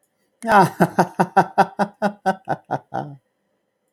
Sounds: Laughter